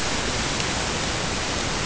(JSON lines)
{"label": "ambient", "recorder": "HydroMoth"}